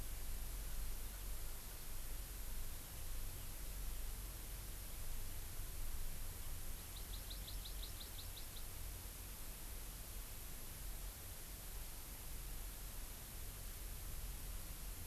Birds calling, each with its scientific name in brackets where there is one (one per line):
Hawaii Amakihi (Chlorodrepanis virens)